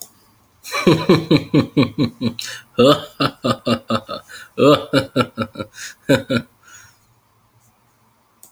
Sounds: Laughter